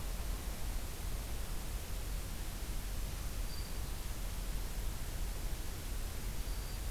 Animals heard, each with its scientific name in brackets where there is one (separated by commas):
Black-throated Green Warbler (Setophaga virens)